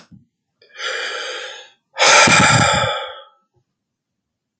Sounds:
Sigh